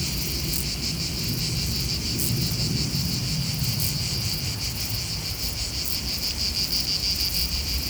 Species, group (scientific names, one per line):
Euchorthippus declivus
Orthoptera